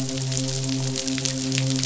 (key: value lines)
label: biophony, midshipman
recorder: SoundTrap 500